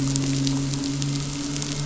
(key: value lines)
label: anthrophony, boat engine
recorder: SoundTrap 500